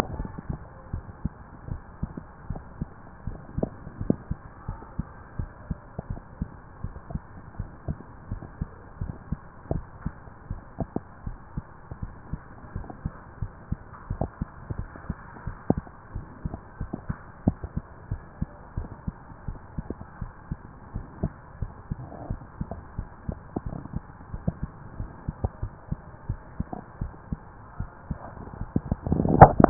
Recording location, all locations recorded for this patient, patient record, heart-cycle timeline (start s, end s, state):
mitral valve (MV)
pulmonary valve (PV)+tricuspid valve (TV)+mitral valve (MV)
#Age: Adolescent
#Sex: Male
#Height: 162.0 cm
#Weight: 58.8 kg
#Pregnancy status: False
#Murmur: Absent
#Murmur locations: nan
#Most audible location: nan
#Systolic murmur timing: nan
#Systolic murmur shape: nan
#Systolic murmur grading: nan
#Systolic murmur pitch: nan
#Systolic murmur quality: nan
#Diastolic murmur timing: nan
#Diastolic murmur shape: nan
#Diastolic murmur grading: nan
#Diastolic murmur pitch: nan
#Diastolic murmur quality: nan
#Outcome: Normal
#Campaign: 2015 screening campaign
0.00	0.90	unannotated
0.90	1.04	S1
1.04	1.18	systole
1.18	1.32	S2
1.32	1.68	diastole
1.68	1.82	S1
1.82	1.96	systole
1.96	2.10	S2
2.10	2.48	diastole
2.48	2.66	S1
2.66	2.78	systole
2.78	2.92	S2
2.92	3.24	diastole
3.24	3.42	S1
3.42	3.54	systole
3.54	3.70	S2
3.70	3.98	diastole
3.98	4.11	S1
4.11	4.24	systole
4.24	4.36	S2
4.36	4.64	diastole
4.64	4.80	S1
4.80	4.94	systole
4.94	5.05	S2
5.05	5.32	diastole
5.32	5.50	S1
5.50	5.65	systole
5.65	5.78	S2
5.78	6.08	diastole
6.08	6.22	S1
6.22	6.34	systole
6.34	6.48	S2
6.48	6.82	diastole
6.82	6.96	S1
6.96	7.08	systole
7.08	7.22	S2
7.22	7.56	diastole
7.56	7.70	S1
7.70	7.86	systole
7.86	7.98	S2
7.98	8.30	diastole
8.30	8.44	S1
8.44	8.54	systole
8.54	8.68	S2
8.68	8.97	diastole
8.97	9.16	S1
9.16	9.26	systole
9.26	9.40	S2
9.40	9.71	diastole
9.71	9.88	S1
9.88	10.02	systole
10.02	10.14	S2
10.14	10.48	diastole
10.48	10.62	S1
10.62	10.76	systole
10.76	10.88	S2
10.88	11.24	diastole
11.24	11.38	S1
11.38	11.54	systole
11.54	11.64	S2
11.64	12.00	diastole
12.00	12.14	S1
12.14	12.26	systole
12.26	12.40	S2
12.40	12.74	diastole
12.74	12.88	S1
12.88	13.01	systole
13.01	13.12	S2
13.12	13.40	diastole
13.40	13.54	S1
13.54	13.66	systole
13.66	13.80	S2
13.80	14.07	diastole
14.07	14.23	S1
14.23	14.38	systole
14.38	14.48	S2
14.48	14.75	diastole
14.75	14.90	S1
14.90	15.06	systole
15.06	15.16	S2
15.16	15.44	diastole
15.44	15.58	S1
15.58	15.73	systole
15.73	15.83	S2
15.83	16.14	diastole
16.14	16.28	S1
16.28	16.40	systole
16.40	16.52	S2
16.52	16.78	diastole
16.78	16.88	S1
16.88	17.06	systole
17.06	17.17	S2
17.17	17.44	diastole
17.44	17.58	S1
17.58	17.72	systole
17.72	17.84	S2
17.84	18.08	diastole
18.08	18.22	S1
18.22	18.38	systole
18.38	18.50	S2
18.50	18.74	diastole
18.74	18.88	S1
18.88	19.03	systole
19.03	19.14	S2
19.14	19.46	diastole
19.46	19.60	S1
19.60	19.72	systole
19.72	19.86	S2
19.86	20.20	diastole
20.20	20.34	S1
20.34	20.48	systole
20.48	20.60	S2
20.60	20.91	diastole
20.91	21.05	S1
21.05	21.21	systole
21.21	21.33	S2
21.33	21.59	diastole
21.59	21.71	S1
21.71	29.70	unannotated